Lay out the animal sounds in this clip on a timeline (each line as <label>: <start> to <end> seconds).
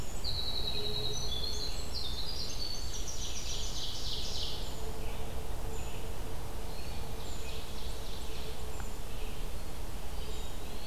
Winter Wren (Troglodytes hiemalis): 0.0 to 4.1 seconds
Red-eyed Vireo (Vireo olivaceus): 0.0 to 10.9 seconds
Ovenbird (Seiurus aurocapilla): 2.6 to 5.2 seconds
Black-capped Chickadee (Poecile atricapillus): 4.5 to 5.1 seconds
Black-capped Chickadee (Poecile atricapillus): 5.7 to 6.1 seconds
Ovenbird (Seiurus aurocapilla): 6.8 to 8.8 seconds
Black-capped Chickadee (Poecile atricapillus): 8.6 to 9.1 seconds
Eastern Wood-Pewee (Contopus virens): 10.2 to 10.9 seconds